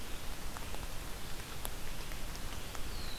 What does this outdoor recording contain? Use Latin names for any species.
Vireo olivaceus